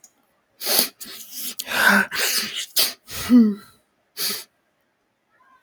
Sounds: Sniff